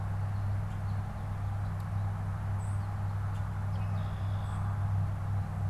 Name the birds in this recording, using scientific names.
Spinus tristis, unidentified bird, Agelaius phoeniceus